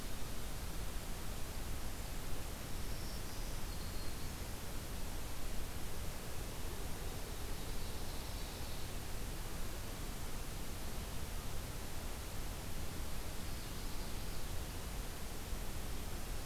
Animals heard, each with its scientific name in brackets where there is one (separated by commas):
Black-throated Green Warbler (Setophaga virens), Ovenbird (Seiurus aurocapilla)